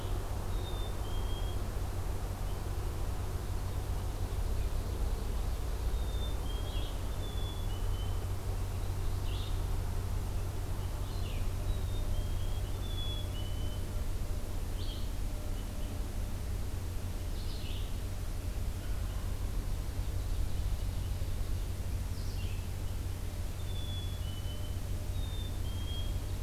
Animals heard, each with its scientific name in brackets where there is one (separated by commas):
Ovenbird (Seiurus aurocapilla), Wild Turkey (Meleagris gallopavo), Red Crossbill (Loxia curvirostra), Red-eyed Vireo (Vireo olivaceus), Black-capped Chickadee (Poecile atricapillus)